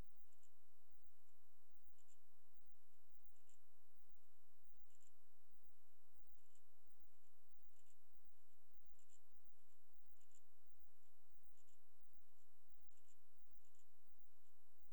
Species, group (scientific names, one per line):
Incertana incerta
Orthoptera